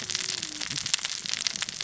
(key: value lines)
label: biophony, cascading saw
recorder: SoundTrap 600 or HydroMoth